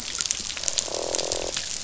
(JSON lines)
{"label": "biophony, croak", "recorder": "SoundTrap 500"}